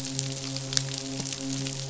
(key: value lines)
label: biophony, midshipman
recorder: SoundTrap 500